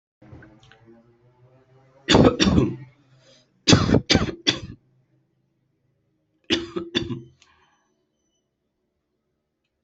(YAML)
expert_labels:
- quality: ok
  cough_type: dry
  dyspnea: false
  wheezing: false
  stridor: false
  choking: false
  congestion: false
  nothing: true
  diagnosis: COVID-19
  severity: mild
age: 25
gender: male
respiratory_condition: false
fever_muscle_pain: false
status: symptomatic